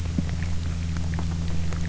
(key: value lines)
label: anthrophony, boat engine
recorder: SoundTrap 300